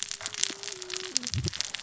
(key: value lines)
label: biophony, cascading saw
recorder: SoundTrap 600 or HydroMoth